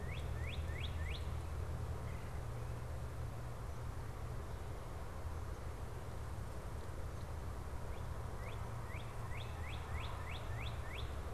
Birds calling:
Red-bellied Woodpecker (Melanerpes carolinus)
Northern Cardinal (Cardinalis cardinalis)

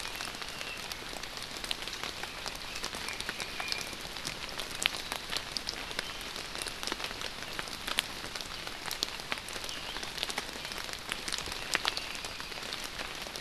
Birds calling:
Apapane (Himatione sanguinea)

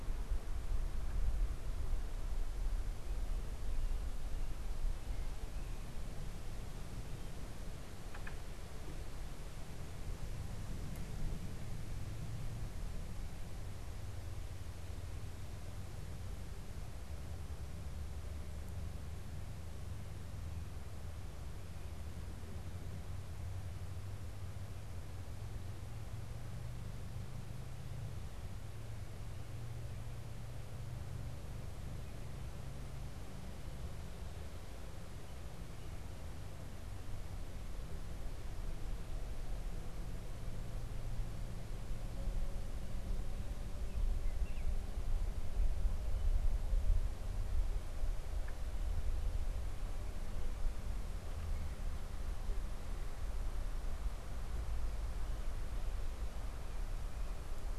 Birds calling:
Baltimore Oriole (Icterus galbula)

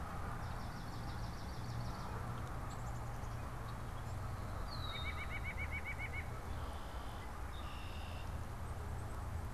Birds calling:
White-breasted Nuthatch (Sitta carolinensis)
Black-capped Chickadee (Poecile atricapillus)
Red-winged Blackbird (Agelaius phoeniceus)
Swamp Sparrow (Melospiza georgiana)

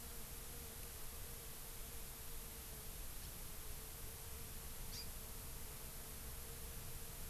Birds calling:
Hawaii Amakihi (Chlorodrepanis virens)

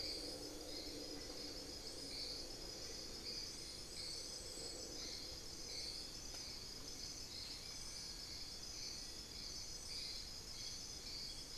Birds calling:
unidentified bird

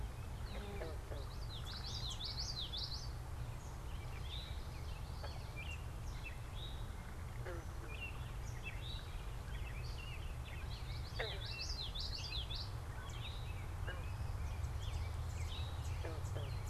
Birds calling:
unidentified bird
Common Yellowthroat (Geothlypis trichas)
Eastern Towhee (Pipilo erythrophthalmus)

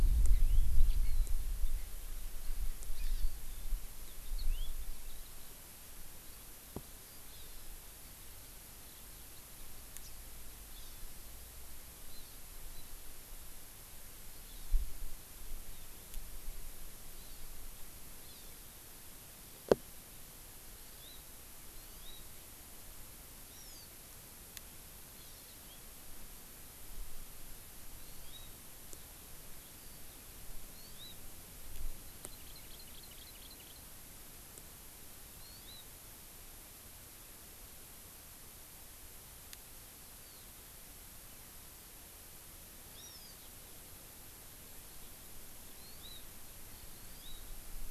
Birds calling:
Hawaii Amakihi (Chlorodrepanis virens)
Yellow-fronted Canary (Crithagra mozambica)

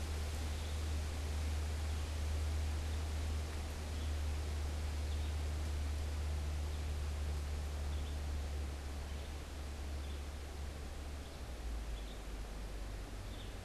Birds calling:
Red-eyed Vireo (Vireo olivaceus)

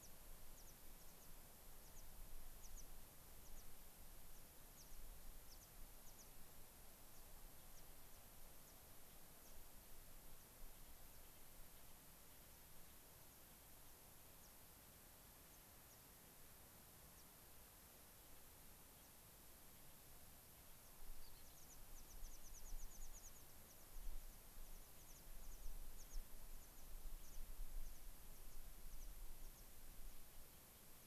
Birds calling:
American Pipit (Anthus rubescens)

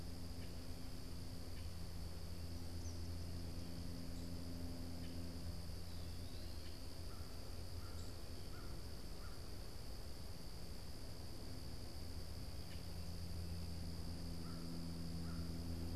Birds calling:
Common Grackle (Quiscalus quiscula)
Eastern Kingbird (Tyrannus tyrannus)
Eastern Wood-Pewee (Contopus virens)
American Crow (Corvus brachyrhynchos)

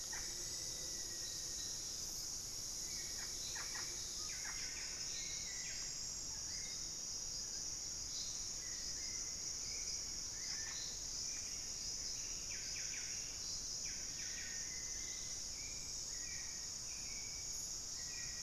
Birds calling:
Hauxwell's Thrush (Turdus hauxwelli)
Russet-backed Oropendola (Psarocolius angustifrons)
Buff-breasted Wren (Cantorchilus leucotis)
Scale-breasted Woodpecker (Celeus grammicus)
Thrush-like Wren (Campylorhynchus turdinus)
Black-faced Antthrush (Formicarius analis)
unidentified bird

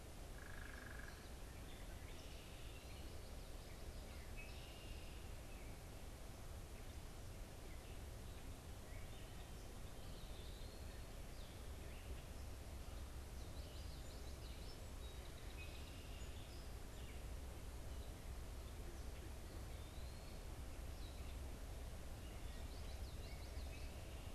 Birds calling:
Eastern Wood-Pewee (Contopus virens)
Gray Catbird (Dumetella carolinensis)
Red-winged Blackbird (Agelaius phoeniceus)
Song Sparrow (Melospiza melodia)
Common Yellowthroat (Geothlypis trichas)
unidentified bird

